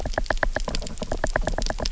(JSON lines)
{"label": "biophony, knock", "recorder": "SoundTrap 300"}